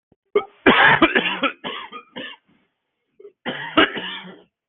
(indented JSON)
{
  "expert_labels": [
    {
      "quality": "good",
      "cough_type": "wet",
      "dyspnea": false,
      "wheezing": false,
      "stridor": false,
      "choking": false,
      "congestion": false,
      "nothing": true,
      "diagnosis": "lower respiratory tract infection",
      "severity": "mild"
    }
  ],
  "age": 42,
  "gender": "male",
  "respiratory_condition": true,
  "fever_muscle_pain": false,
  "status": "symptomatic"
}